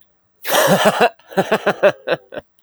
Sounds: Laughter